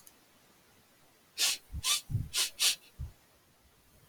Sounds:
Sniff